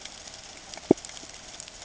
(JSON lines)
{"label": "ambient", "recorder": "HydroMoth"}